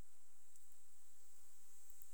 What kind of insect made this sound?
orthopteran